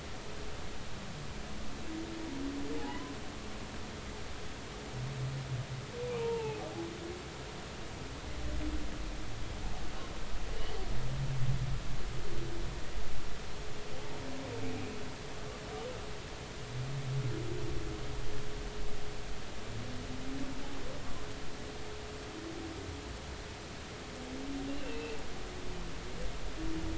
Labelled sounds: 2.8	3.1	humpback whale, 0.80 to 1.1 kHz
6.2	6.6	humpback whale, 0.80 to 0.96 kHz
24.7	25.2	humpback whale, 2.5 to 2.9 kHz

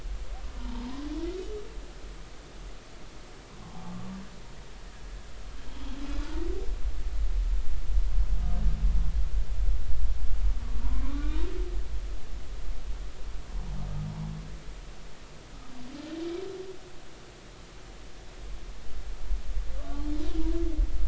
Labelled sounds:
0.6	1.1	humpback whale, 0.83 to 1.2 kHz
3.6	3.9	humpback whale, 0.80 to 0.90 kHz
11.0	11.4	humpback whale, 0.93 to 1.3 kHz
19.8	20.1	humpback whale, 1.1 to 1.2 kHz

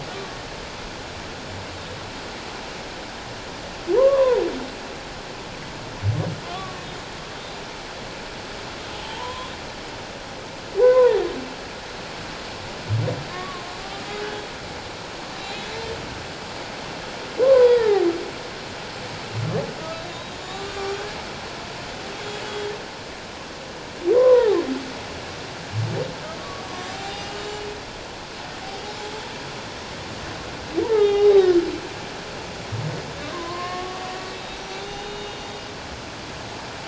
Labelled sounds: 4.0	4.4	humpback whale, 0.88 to 1.2 kHz
6.4	6.8	humpback whale, 1.0 to 1.2 kHz
8.9	9.5	humpback whale, 0.81 to 1.1 kHz
10.8	11.2	humpback whale, 0.84 to 1.1 kHz
13.3	13.7	humpback whale, 1.0 to 1.2 kHz
17.4	18.0	humpback whale, 0.91 to 2.1 kHz
19.9	20.9	humpback whale, 1.1 to 4.0 kHz
22.1	22.7	humpback whale, 3.2 to 3.4 kHz
24.1	24.6	humpback whale, 0.78 to 1.2 kHz
26.4	27.7	humpback whale, 0.78 to 7.2 kHz
30.9	31.5	humpback whale, 0.78 to 4.0 kHz
33.3	34.0	humpback whale, 0.94 to 2.2 kHz
34.3	35.4	humpback whale, 2.8 to 6.2 kHz

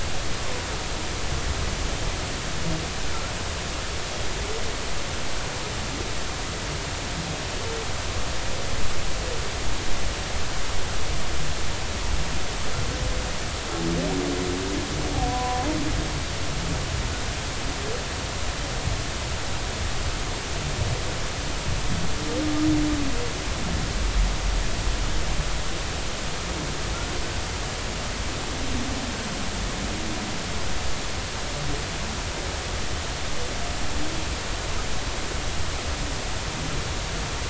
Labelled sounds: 15.3	15.6	humpback whale, 0.93 to 1.1 kHz

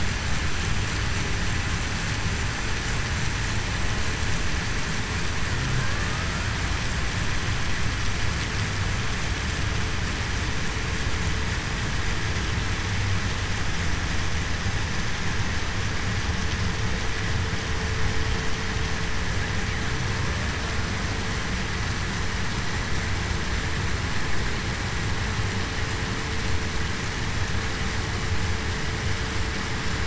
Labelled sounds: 6.1	6.4	killer whale, Bigg's (transient), 1.2 to 1.4 kHz

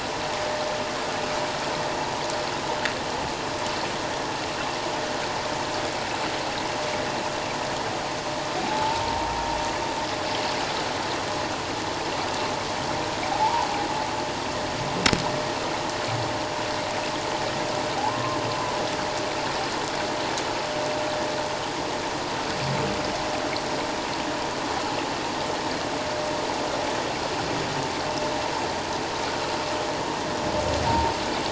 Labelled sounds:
8.6	9.3	humpback whale, 0.78 to 0.97 kHz
13.3	13.7	humpback whale, 0.78 to 1.2 kHz
18.0	18.4	humpback whale, 0.78 to 1.1 kHz
30.9	31.1	humpback whale, 0.88 to 0.97 kHz

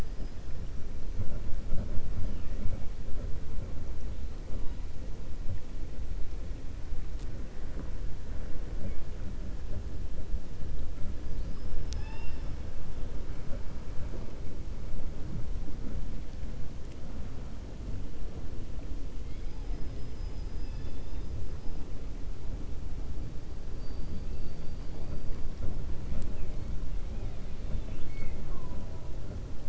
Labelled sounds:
11.3	12.6	killer whale, 0.85 to 5.4 kHz

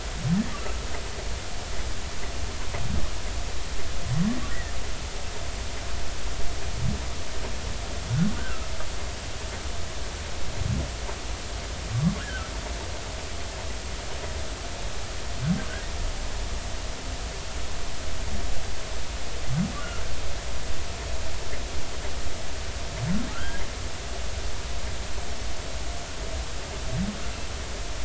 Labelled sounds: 0.6	0.8	humpback whale, 1.2 to 1.4 kHz
4.5	4.7	humpback whale, 1.7 to 2.0 kHz
8.4	8.7	humpback whale, 1.2 to 1.7 kHz
19.8	20.0	humpback whale, 1.3 to 1.5 kHz
23.3	23.6	humpback whale, 1.2 to 1.7 kHz

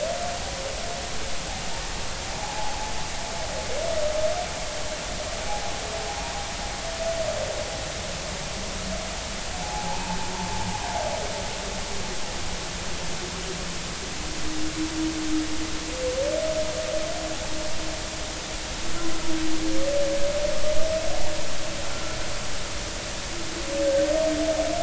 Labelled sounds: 2.4	2.9	humpback whale, 0.80 to 1.1 kHz
9.6	10.0	humpback whale, 0.80 to 0.99 kHz
21.9	22.2	humpback whale, 1.3 to 1.5 kHz
24.0	24.2	humpback whale, 1.8 to 1.9 kHz

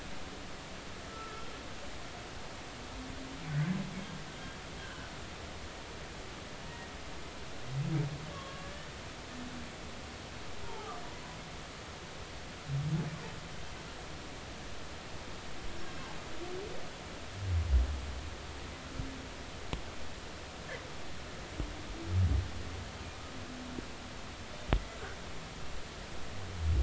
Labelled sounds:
1.1	1.5	humpback whale, 1.2 to 1.4 kHz
4.8	5.1	humpback whale, 1.4 to 1.7 kHz
8.3	8.9	humpback whale, 1.0 to 1.9 kHz
10.6	11.0	humpback whale, 0.80 to 1.3 kHz

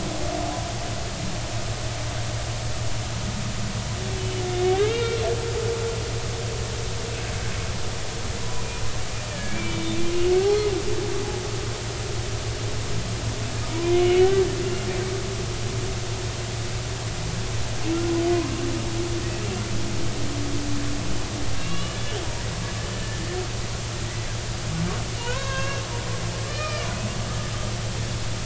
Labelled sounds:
4.2	5.2	humpback whale, 2.0 to 3.8 kHz
8.4	8.8	humpback whale, 0.93 to 2.5 kHz
9.3	10.9	humpback whale, 1.6 to 3.7 kHz
13.9	14.5	humpback whale, 1.4 to 3.1 kHz
21.6	22.0	humpback whale, 2.7 to 3.0 kHz
22.9	23.2	humpback whale, 1.7 to 1.9 kHz
25.2	26.9	humpback whale, 0.90 to 6.5 kHz

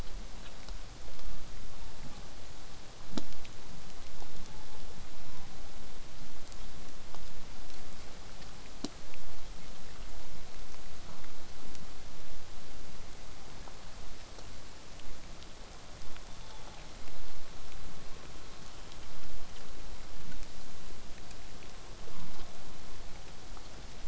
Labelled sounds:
1.6	2.4	killer whale, southern resident, 0.57 to 1.3 kHz
4.4	4.8	killer whale, southern resident, 0.70 to 3.7 kHz
5.2	5.6	killer whale, southern resident, 0.78 to 1.2 kHz
16.3	16.9	killer whale, southern resident, 0.66 to 3.7 kHz

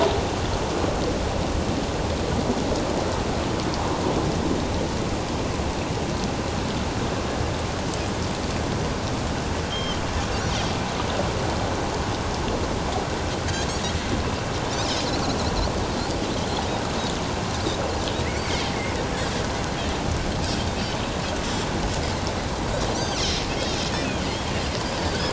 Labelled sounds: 9.7	10.0	Pacific white-sided dolphin, 2.8 to 3.3 kHz
14.7	15.1	Pacific white-sided dolphin, 4.4 to 5.4 kHz
22.9	23.5	Pacific white-sided dolphin, 4.0 to 6.4 kHz

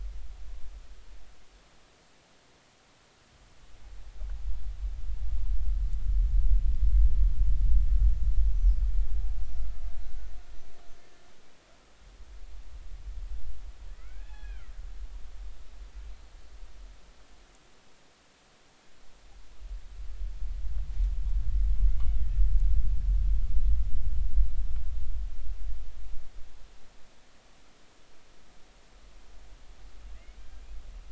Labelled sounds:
13.9	14.7	killer whale, Bigg's (transient), 1.2 to 3.5 kHz
21.9	22.2	killer whale, Bigg's (transient), 2.8 to 3.0 kHz

